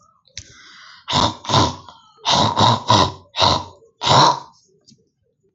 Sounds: Throat clearing